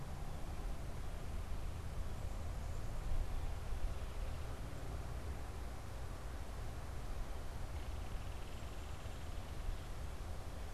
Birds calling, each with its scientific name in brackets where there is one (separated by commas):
Belted Kingfisher (Megaceryle alcyon)